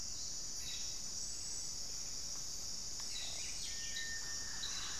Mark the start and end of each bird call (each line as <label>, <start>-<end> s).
Cobalt-winged Parakeet (Brotogeris cyanoptera), 2.7-5.0 s